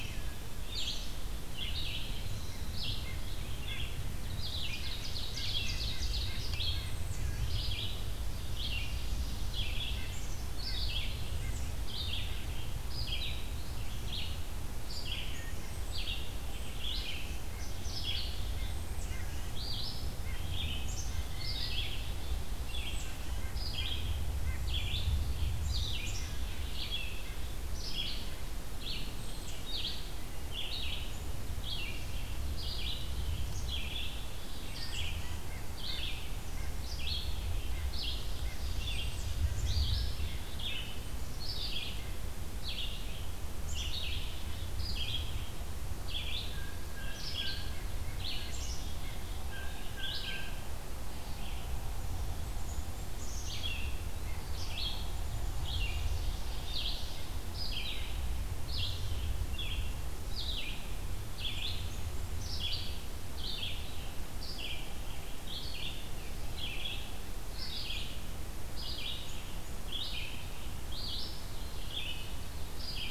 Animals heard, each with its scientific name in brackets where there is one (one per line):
Black-capped Chickadee (Poecile atricapillus)
Blue Jay (Cyanocitta cristata)
Ovenbird (Seiurus aurocapilla)
Eastern Wood-Pewee (Contopus virens)
Red-eyed Vireo (Vireo olivaceus)
White-breasted Nuthatch (Sitta carolinensis)